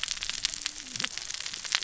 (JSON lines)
{"label": "biophony, cascading saw", "recorder": "SoundTrap 600 or HydroMoth"}